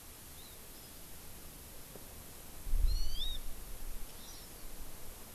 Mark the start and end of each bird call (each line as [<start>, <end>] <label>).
[0.30, 1.00] Hawaii Amakihi (Chlorodrepanis virens)
[2.80, 3.40] Hawaii Amakihi (Chlorodrepanis virens)
[4.10, 4.60] Hawaii Amakihi (Chlorodrepanis virens)